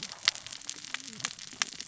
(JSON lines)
{"label": "biophony, cascading saw", "recorder": "SoundTrap 600 or HydroMoth"}